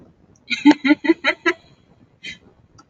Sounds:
Laughter